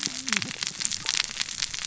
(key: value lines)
label: biophony, cascading saw
recorder: SoundTrap 600 or HydroMoth